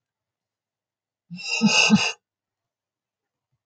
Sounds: Laughter